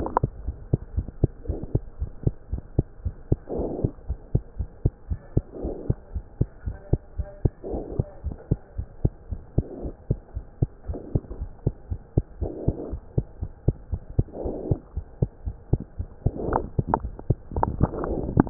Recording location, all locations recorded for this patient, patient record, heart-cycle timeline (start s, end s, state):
pulmonary valve (PV)
aortic valve (AV)+pulmonary valve (PV)+tricuspid valve (TV)+mitral valve (MV)
#Age: Child
#Sex: Male
#Height: 73.0 cm
#Weight: 8.775 kg
#Pregnancy status: False
#Murmur: Absent
#Murmur locations: nan
#Most audible location: nan
#Systolic murmur timing: nan
#Systolic murmur shape: nan
#Systolic murmur grading: nan
#Systolic murmur pitch: nan
#Systolic murmur quality: nan
#Diastolic murmur timing: nan
#Diastolic murmur shape: nan
#Diastolic murmur grading: nan
#Diastolic murmur pitch: nan
#Diastolic murmur quality: nan
#Outcome: Normal
#Campaign: 2015 screening campaign
0.00	0.29	unannotated
0.29	0.46	diastole
0.46	0.58	S1
0.58	0.70	systole
0.70	0.82	S2
0.82	0.96	diastole
0.96	1.08	S1
1.08	1.22	systole
1.22	1.34	S2
1.34	1.46	diastole
1.46	1.60	S1
1.60	1.74	systole
1.74	1.84	S2
1.84	2.00	diastole
2.00	2.12	S1
2.12	2.22	systole
2.22	2.34	S2
2.34	2.50	diastole
2.50	2.60	S1
2.60	2.74	systole
2.74	2.88	S2
2.88	3.04	diastole
3.04	3.14	S1
3.14	3.28	systole
3.28	3.42	S2
3.42	3.56	diastole
3.56	3.72	S1
3.72	3.80	systole
3.80	3.92	S2
3.92	4.08	diastole
4.08	4.18	S1
4.18	4.30	systole
4.30	4.42	S2
4.42	4.58	diastole
4.58	4.68	S1
4.68	4.82	systole
4.82	4.92	S2
4.92	5.08	diastole
5.08	5.18	S1
5.18	5.32	systole
5.32	5.46	S2
5.46	5.62	diastole
5.62	5.76	S1
5.76	5.86	systole
5.86	6.00	S2
6.00	6.14	diastole
6.14	6.24	S1
6.24	6.36	systole
6.36	6.48	S2
6.48	6.66	diastole
6.66	6.76	S1
6.76	6.88	systole
6.88	7.02	S2
7.02	7.18	diastole
7.18	7.28	S1
7.28	7.40	systole
7.40	7.52	S2
7.52	7.68	diastole
7.68	7.82	S1
7.82	7.96	systole
7.96	8.06	S2
8.06	8.24	diastole
8.24	8.36	S1
8.36	8.50	systole
8.50	8.60	S2
8.60	8.78	diastole
8.78	8.86	S1
8.86	9.00	systole
9.00	9.14	S2
9.14	9.30	diastole
9.30	9.40	S1
9.40	9.54	systole
9.54	9.66	S2
9.66	9.82	diastole
9.82	9.94	S1
9.94	10.06	systole
10.06	10.20	S2
10.20	10.36	diastole
10.36	10.44	S1
10.44	10.58	systole
10.58	10.70	S2
10.70	10.88	diastole
10.88	11.00	S1
11.00	11.12	systole
11.12	11.24	S2
11.24	11.38	diastole
11.38	11.50	S1
11.50	11.62	systole
11.62	11.74	S2
11.74	11.90	diastole
11.90	12.00	S1
12.00	12.15	systole
12.15	12.26	S2
12.26	12.40	diastole
12.40	12.54	S1
12.54	12.66	systole
12.66	12.76	S2
12.76	12.88	diastole
12.88	13.00	S1
13.00	13.14	systole
13.14	13.26	S2
13.26	13.40	diastole
13.40	13.50	S1
13.50	13.64	systole
13.64	13.76	S2
13.76	13.92	diastole
13.92	14.02	S1
14.02	14.14	systole
14.14	14.26	S2
14.26	14.42	diastole
14.42	14.56	S1
14.56	14.66	systole
14.66	14.80	S2
14.80	14.96	diastole
14.96	15.06	S1
15.06	15.18	systole
15.18	15.30	S2
15.30	15.46	diastole
15.46	15.56	S1
15.56	15.68	systole
15.68	15.82	S2
15.82	15.98	diastole
15.98	16.08	S1
16.08	16.22	systole
16.22	16.34	S2
16.34	16.48	diastole
16.48	18.50	unannotated